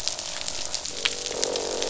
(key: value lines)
label: biophony, croak
recorder: SoundTrap 500